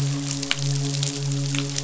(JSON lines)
{"label": "biophony, midshipman", "recorder": "SoundTrap 500"}